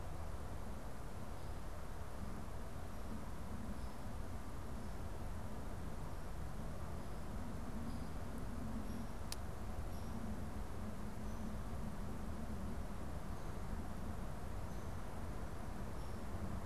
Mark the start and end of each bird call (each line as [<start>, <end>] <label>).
[7.59, 16.65] Hairy Woodpecker (Dryobates villosus)